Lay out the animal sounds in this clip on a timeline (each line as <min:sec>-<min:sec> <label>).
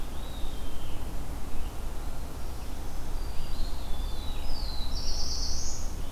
0:00.0-0:01.1 Eastern Wood-Pewee (Contopus virens)
0:00.0-0:01.2 Scarlet Tanager (Piranga olivacea)
0:00.0-0:06.1 Red-eyed Vireo (Vireo olivaceus)
0:02.3-0:03.9 Black-throated Green Warbler (Setophaga virens)
0:03.2-0:04.5 Eastern Wood-Pewee (Contopus virens)
0:03.9-0:06.1 Black-throated Blue Warbler (Setophaga caerulescens)